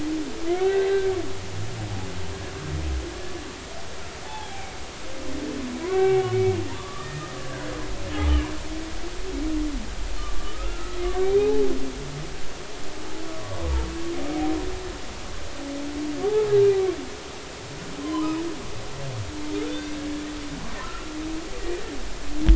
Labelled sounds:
0.5	1.0	humpback whale, 1.4 to 2.0 kHz
4.2	4.8	humpback whale, 0.80 to 2.4 kHz
5.8	7.4	humpback whale, 0.80 to 2.8 kHz
10.4	11.6	humpback whale, 0.80 to 2.6 kHz
13.2	13.6	humpback whale, 0.99 to 1.2 kHz
16.2	16.5	humpback whale, 0.80 to 0.93 kHz
18.0	18.3	humpback whale, 0.93 to 1.1 kHz
19.6	19.9	humpback whale, 3.4 to 3.7 kHz
20.8	21.1	humpback whale, 1.2 to 1.5 kHz

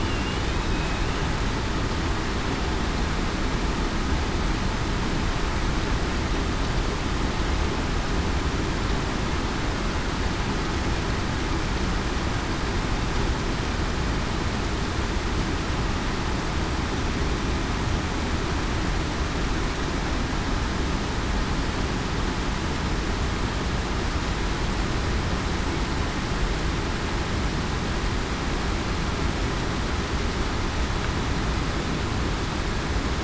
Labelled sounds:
0.0	0.4	killer whale, southern resident, 2.7 to 3.0 kHz

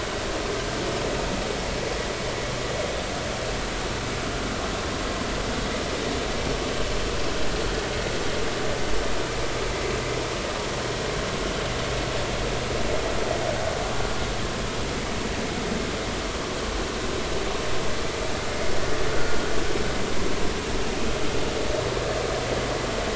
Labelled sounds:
19.1	19.4	vessel noise, 1.4 to 1.5 kHz

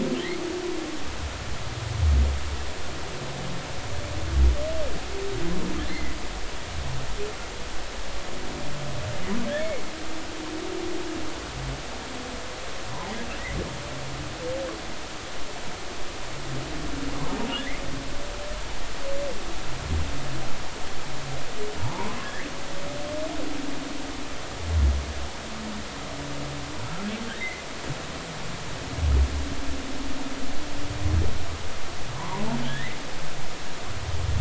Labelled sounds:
5.9	6.1	humpback whale, 1.9 to 2.2 kHz
17.6	17.8	humpback whale, 1.6 to 2.4 kHz
21.8	22.2	humpback whale, 0.83 to 1.1 kHz
27.3	27.6	humpback whale, 1.4 to 2.2 kHz
32.1	33.0	humpback whale, 0.83 to 2.2 kHz

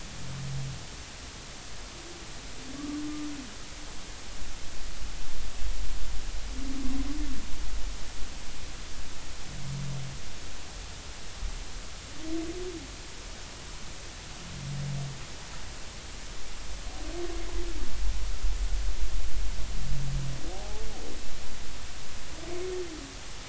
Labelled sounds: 20.5	20.8	humpback whale, 0.80 to 0.90 kHz

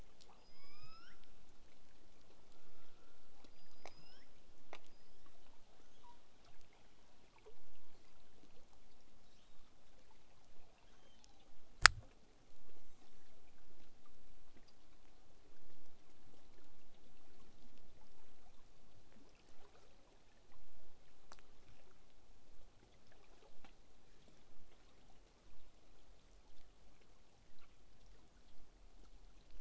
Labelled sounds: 0.4	1.3	killer whale, southern resident, L pod, call S19, 0.93 to 8.0 kHz
3.5	4.3	killer whale, southern resident, L pod, call S19, 1.2 to 8.0 kHz
5.7	6.3	killer whale, southern resident, L pod, call S02iii, 0.81 to 6.7 kHz
9.2	9.7	killer whale, southern resident, 2.3 to 7.8 kHz
10.7	11.5	killer whale, southern resident, L pod, call S02iii, 0.54 to 6.8 kHz
12.7	13.7	killer whale, southern resident, call S01, 0.66 to 8.0 kHz

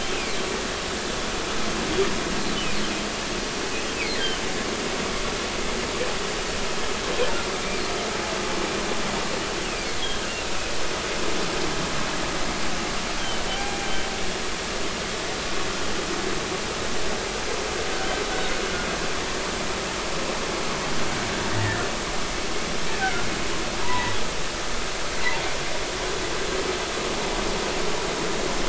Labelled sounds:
3.9	4.4	humpback whale, 1.5 to 2.7 kHz
7.5	7.8	humpback whale, 2.2 to 2.4 kHz
10.0	10.3	humpback whale, 3.1 to 3.4 kHz
13.5	13.9	humpback whale, 0.80 to 0.86 kHz
14.2	14.4	humpback whale, 3.0 to 3.3 kHz
23.0	24.2	humpback whale, 0.83 to 2.0 kHz

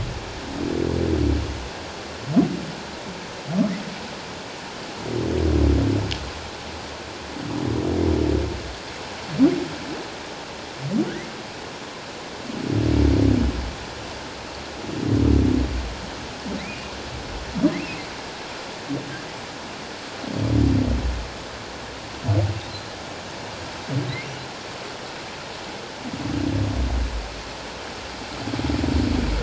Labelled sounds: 16.6	16.9	humpback whale, 1.9 to 2.6 kHz
22.7	22.9	humpback whale, 4.0 to 4.2 kHz

